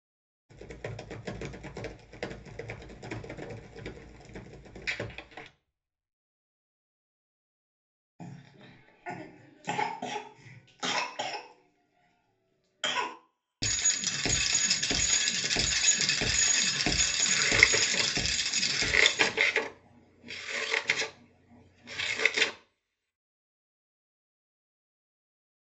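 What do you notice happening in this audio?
At 0.48 seconds, the sound of a computer keyboard can be heard. Afterwards, at 8.19 seconds, someone coughs. Next, at 13.6 seconds, a bicycle is heard. Over it, at 17.27 seconds, the sound of scissors is audible.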